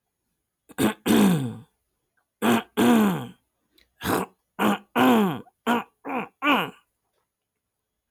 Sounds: Throat clearing